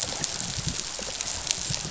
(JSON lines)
{"label": "biophony, rattle response", "recorder": "SoundTrap 500"}